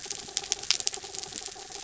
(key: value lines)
label: anthrophony, mechanical
recorder: SoundTrap 300